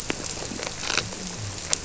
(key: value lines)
label: biophony
recorder: SoundTrap 300